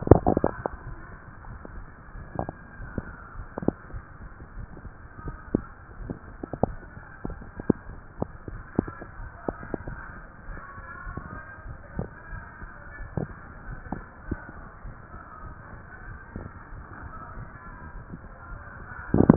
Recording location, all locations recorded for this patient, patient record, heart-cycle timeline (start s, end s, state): mitral valve (MV)
aortic valve (AV)+pulmonary valve (PV)+tricuspid valve (TV)+mitral valve (MV)
#Age: nan
#Sex: Female
#Height: nan
#Weight: nan
#Pregnancy status: True
#Murmur: Absent
#Murmur locations: nan
#Most audible location: nan
#Systolic murmur timing: nan
#Systolic murmur shape: nan
#Systolic murmur grading: nan
#Systolic murmur pitch: nan
#Systolic murmur quality: nan
#Diastolic murmur timing: nan
#Diastolic murmur shape: nan
#Diastolic murmur grading: nan
#Diastolic murmur pitch: nan
#Diastolic murmur quality: nan
#Outcome: Normal
#Campaign: 2015 screening campaign
0.00	0.66	unannotated
0.66	0.86	diastole
0.86	0.98	S1
0.98	1.10	systole
1.10	1.20	S2
1.20	1.44	diastole
1.44	1.58	S1
1.58	1.76	systole
1.76	1.86	S2
1.86	2.14	diastole
2.14	2.28	S1
2.28	2.42	systole
2.42	2.54	S2
2.54	2.76	diastole
2.76	2.90	S1
2.90	3.06	systole
3.06	3.16	S2
3.16	3.36	diastole
3.36	3.48	S1
3.48	3.62	systole
3.62	3.74	S2
3.74	3.94	diastole
3.94	4.05	S1
4.05	4.18	systole
4.18	4.32	S2
4.32	4.56	diastole
4.56	4.70	S1
4.70	4.84	systole
4.84	4.94	S2
4.94	5.24	diastole
5.24	5.38	S1
5.38	5.52	systole
5.52	5.66	S2
5.66	5.98	diastole
5.98	6.14	S1
6.14	6.28	systole
6.28	6.38	S2
6.38	6.60	diastole
6.60	6.76	S1
6.76	6.92	systole
6.92	7.02	S2
7.02	7.26	diastole
7.26	7.38	S1
7.38	7.56	systole
7.56	7.66	S2
7.66	7.88	diastole
7.88	8.02	S1
8.02	8.18	systole
8.18	8.30	S2
8.30	8.52	diastole
8.52	8.66	S1
8.66	8.78	systole
8.78	8.94	S2
8.94	9.16	diastole
9.16	9.30	S1
9.30	9.45	systole
9.45	9.58	S2
9.58	9.86	diastole
9.86	9.98	S1
9.98	10.16	systole
10.16	10.22	S2
10.22	10.48	diastole
10.48	10.60	S1
10.60	10.76	systole
10.76	10.84	S2
10.84	11.04	diastole
11.04	11.16	S1
11.16	11.30	systole
11.30	11.42	S2
11.42	11.64	diastole
11.64	11.78	S1
11.78	11.94	systole
11.94	12.08	S2
12.08	12.30	diastole
12.30	12.44	S1
12.44	12.60	systole
12.60	12.72	S2
12.72	12.98	diastole
12.98	13.12	S1
13.12	13.28	systole
13.28	13.38	S2
13.38	13.66	diastole
13.66	13.80	S1
13.80	13.92	systole
13.92	14.04	S2
14.04	14.26	diastole
14.26	14.44	S1
14.44	14.58	systole
14.58	14.66	S2
14.66	14.86	diastole
14.86	14.98	S1
14.98	15.14	systole
15.14	15.22	S2
15.22	15.44	diastole
15.44	15.56	S1
15.56	15.72	systole
15.72	15.82	S2
15.82	16.06	diastole
16.06	16.20	S1
16.20	16.36	systole
16.36	16.50	S2
16.50	16.74	diastole
16.74	19.36	unannotated